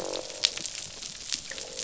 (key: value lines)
label: biophony, croak
recorder: SoundTrap 500